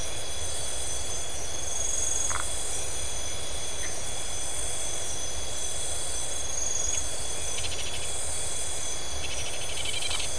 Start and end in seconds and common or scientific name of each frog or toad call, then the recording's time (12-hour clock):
2.2	2.5	Phyllomedusa distincta
3.8	4.0	Phyllomedusa distincta
7.4	8.2	Scinax rizibilis
9.1	10.3	Scinax rizibilis
12:15am